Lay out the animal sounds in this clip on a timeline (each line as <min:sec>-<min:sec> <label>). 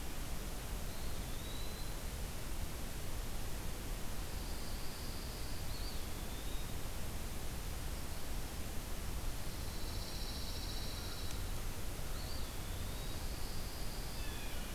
0:00.7-0:01.9 Eastern Wood-Pewee (Contopus virens)
0:04.1-0:05.7 Pine Warbler (Setophaga pinus)
0:05.5-0:07.2 Eastern Wood-Pewee (Contopus virens)
0:09.4-0:11.5 Pine Warbler (Setophaga pinus)
0:12.0-0:13.2 Eastern Wood-Pewee (Contopus virens)
0:12.5-0:14.3 Pine Warbler (Setophaga pinus)
0:14.1-0:14.7 Blue Jay (Cyanocitta cristata)